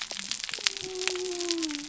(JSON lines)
{"label": "biophony", "recorder": "SoundTrap 300"}